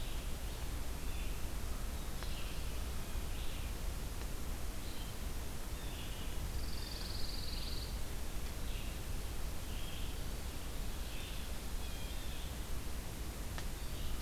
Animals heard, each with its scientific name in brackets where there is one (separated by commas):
Pine Warbler (Setophaga pinus), Red-eyed Vireo (Vireo olivaceus), Blue Jay (Cyanocitta cristata)